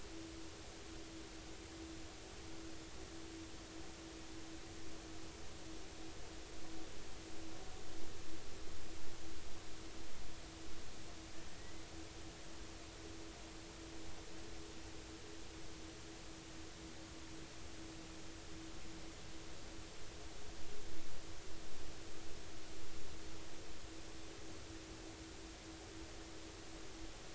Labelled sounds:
11.5	11.8	killer whale, 1.8 to 2.1 kHz

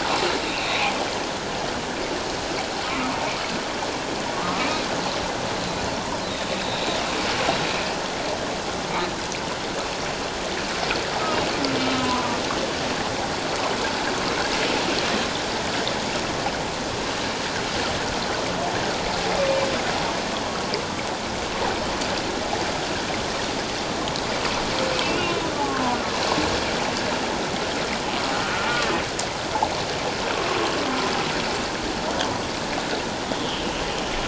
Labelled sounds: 0.4	0.7	humpback whale, 2.2 to 2.8 kHz
4.3	4.7	humpback whale, 1.0 to 1.4 kHz
6.3	6.5	humpback whale, 3.5 to 3.9 kHz
12.0	12.4	humpback whale, 0.94 to 1.2 kHz
25.0	25.4	humpback whale, 2.6 to 2.9 kHz
33.3	33.7	humpback whale, 2.8 to 3.5 kHz

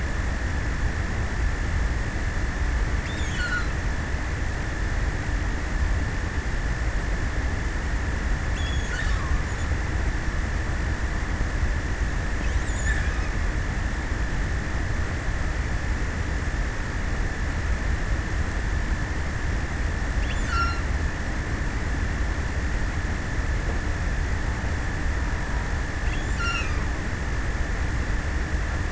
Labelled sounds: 2.8	4.1	killer whale, offshore, 0.95 to 8.0 kHz
8.5	10.0	killer whale, offshore, 0.32 to 8.0 kHz
11.8	13.6	killer whale, offshore, 0.55 to 8.0 kHz
19.6	21.1	killer whale, offshore, 0.71 to 8.0 kHz
25.6	27.4	killer whale, offshore, 0.71 to 8.0 kHz

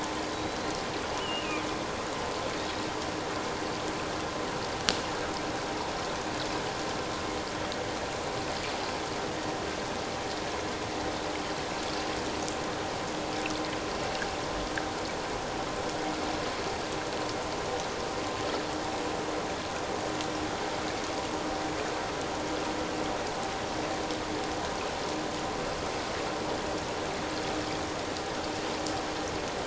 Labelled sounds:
0.3	0.7	killer whale, offshore, 3.8 to 4.2 kHz
1.1	1.6	killer whale, offshore, 2.2 to 3.0 kHz
2.6	2.9	killer whale, offshore, 3.6 to 3.9 kHz

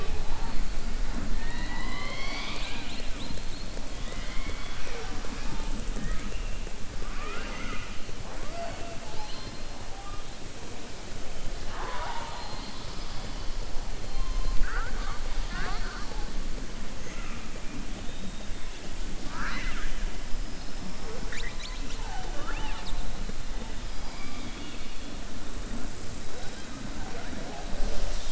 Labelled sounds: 7.0	8.0	killer whale, southern resident, 0.41 to 3.5 kHz
19.2	20.0	killer whale, southern resident, 0.34 to 6.1 kHz
23.8	25.0	killer whale, southern resident, 1.2 to 5.0 kHz

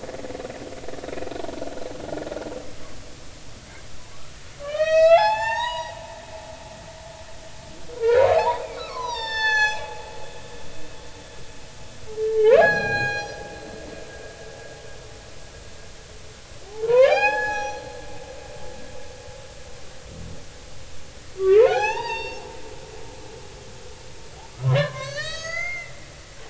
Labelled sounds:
4.6	6.0	humpback whale, 0.80 to 7.8 kHz
8.0	9.9	humpback whale, 0.80 to 8.0 kHz
12.5	13.4	humpback whale, 0.80 to 5.9 kHz
16.7	17.8	humpback whale, 0.80 to 6.8 kHz
21.4	22.4	humpback whale, 0.80 to 6.4 kHz
24.5	25.9	humpback whale, 0.96 to 8.0 kHz

